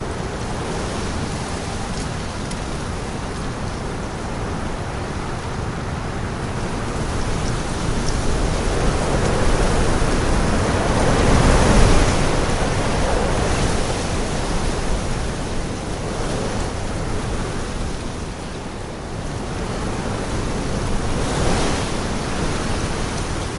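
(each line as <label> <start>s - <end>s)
A mild wind can be heard. 0.0s - 8.6s
A dry branch breaks. 2.5s - 2.7s
A strong gust of wind. 8.6s - 14.0s
A mild wind can be heard. 14.0s - 23.6s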